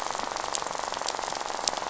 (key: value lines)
label: biophony, rattle
recorder: SoundTrap 500